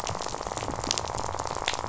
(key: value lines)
label: biophony, rattle
recorder: SoundTrap 500